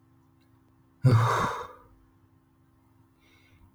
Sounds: Sigh